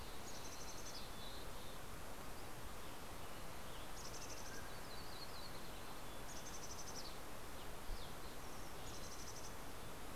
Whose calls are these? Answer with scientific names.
Poecile gambeli, Empidonax oberholseri, Oreortyx pictus